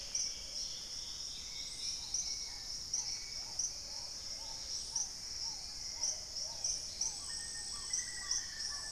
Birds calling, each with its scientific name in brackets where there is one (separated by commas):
Paradise Tanager (Tangara chilensis), Hauxwell's Thrush (Turdus hauxwelli), Long-winged Antwren (Myrmotherula longipennis), Black-tailed Trogon (Trogon melanurus), Dusky-capped Greenlet (Pachysylvia hypoxantha), Black-faced Antthrush (Formicarius analis), Plumbeous Pigeon (Patagioenas plumbea), Dusky-throated Antshrike (Thamnomanes ardesiacus)